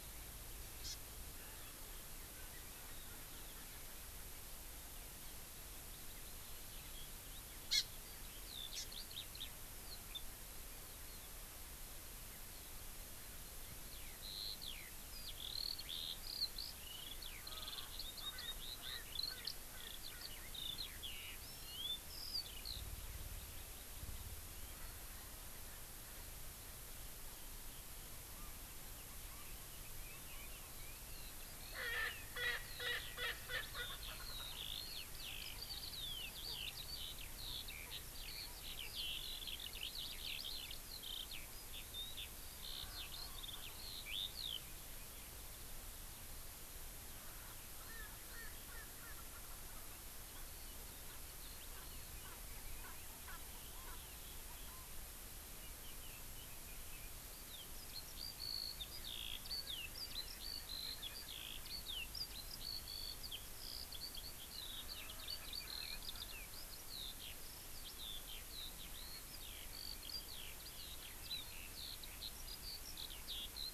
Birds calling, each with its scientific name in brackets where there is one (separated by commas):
Erckel's Francolin (Pternistis erckelii), Eurasian Skylark (Alauda arvensis), Hawaii Amakihi (Chlorodrepanis virens)